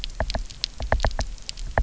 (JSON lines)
{"label": "biophony, knock", "recorder": "SoundTrap 300"}